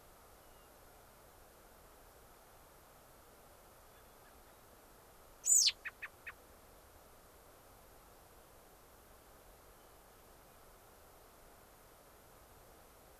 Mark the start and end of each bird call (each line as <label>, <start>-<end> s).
Hermit Thrush (Catharus guttatus), 0.3-0.7 s
American Robin (Turdus migratorius), 3.9-4.5 s
Hermit Thrush (Catharus guttatus), 3.9-4.6 s
American Robin (Turdus migratorius), 5.3-6.3 s
Hermit Thrush (Catharus guttatus), 9.7-10.6 s